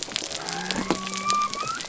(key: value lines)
label: biophony
recorder: SoundTrap 300